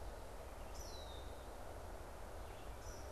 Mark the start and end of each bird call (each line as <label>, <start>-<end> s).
Eastern Kingbird (Tyrannus tyrannus), 0.0-3.1 s
Red-eyed Vireo (Vireo olivaceus), 0.0-3.1 s
Red-winged Blackbird (Agelaius phoeniceus), 0.8-1.4 s